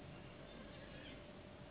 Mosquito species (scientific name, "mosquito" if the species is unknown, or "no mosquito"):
Anopheles gambiae s.s.